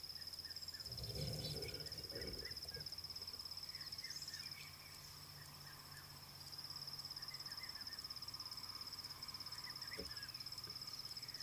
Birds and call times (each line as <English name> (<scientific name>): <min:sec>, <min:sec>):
Fork-tailed Drongo (Dicrurus adsimilis): 0:01.4
Red-chested Cuckoo (Cuculus solitarius): 0:07.6